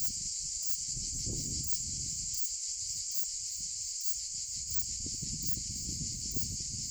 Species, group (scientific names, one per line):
Ephippiger diurnus
Orthoptera